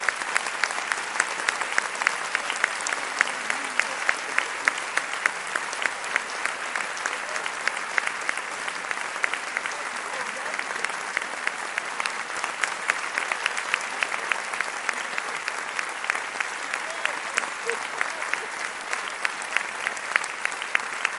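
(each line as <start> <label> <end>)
0.0 People are clapping in a medium-sized theatre hall. 21.2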